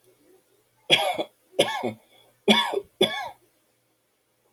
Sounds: Cough